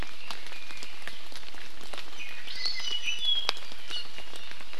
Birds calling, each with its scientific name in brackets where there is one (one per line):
Hawaii Amakihi (Chlorodrepanis virens)
Iiwi (Drepanis coccinea)